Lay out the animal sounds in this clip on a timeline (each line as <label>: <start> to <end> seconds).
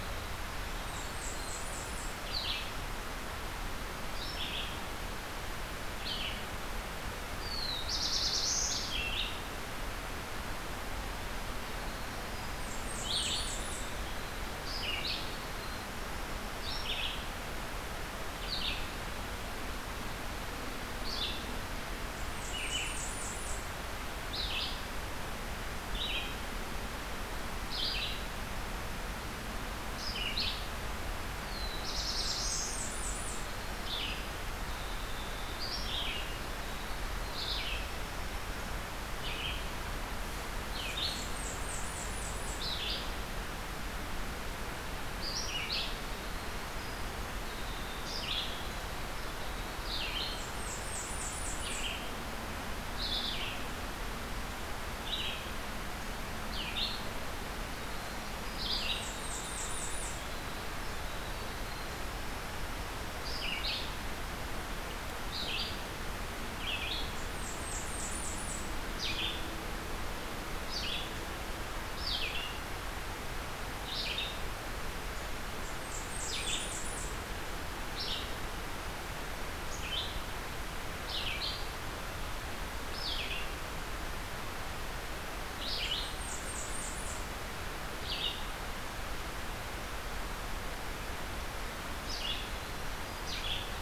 Winter Wren (Troglodytes hiemalis): 0.0 to 2.7 seconds
Red-eyed Vireo (Vireo olivaceus): 0.0 to 93.6 seconds
Blackburnian Warbler (Setophaga fusca): 0.8 to 2.3 seconds
Black-throated Blue Warbler (Setophaga caerulescens): 7.3 to 8.8 seconds
Winter Wren (Troglodytes hiemalis): 11.2 to 16.9 seconds
Blackburnian Warbler (Setophaga fusca): 12.5 to 14.0 seconds
Blackburnian Warbler (Setophaga fusca): 22.2 to 23.7 seconds
Black-throated Blue Warbler (Setophaga caerulescens): 31.3 to 32.8 seconds
Blackburnian Warbler (Setophaga fusca): 31.9 to 33.5 seconds
Winter Wren (Troglodytes hiemalis): 32.2 to 39.0 seconds
Blackburnian Warbler (Setophaga fusca): 40.8 to 42.6 seconds
Winter Wren (Troglodytes hiemalis): 45.7 to 50.4 seconds
Blackburnian Warbler (Setophaga fusca): 50.3 to 51.9 seconds
Winter Wren (Troglodytes hiemalis): 57.5 to 62.3 seconds
Blackburnian Warbler (Setophaga fusca): 58.5 to 60.2 seconds
Blackburnian Warbler (Setophaga fusca): 67.0 to 68.7 seconds
Blackburnian Warbler (Setophaga fusca): 75.6 to 77.2 seconds
Blackburnian Warbler (Setophaga fusca): 85.9 to 87.4 seconds